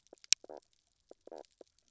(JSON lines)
{"label": "biophony, knock croak", "recorder": "SoundTrap 300"}